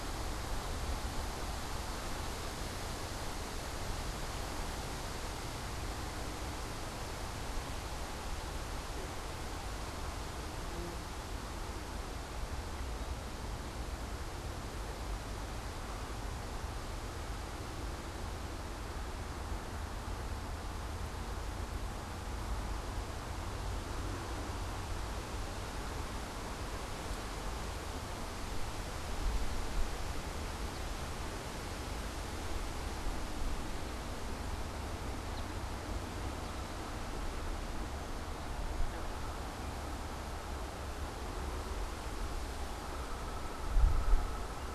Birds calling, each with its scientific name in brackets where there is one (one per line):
American Goldfinch (Spinus tristis)